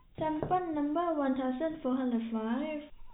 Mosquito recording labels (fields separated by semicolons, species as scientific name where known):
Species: no mosquito; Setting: cup